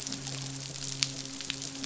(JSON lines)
{"label": "biophony, midshipman", "recorder": "SoundTrap 500"}